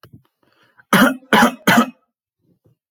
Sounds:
Cough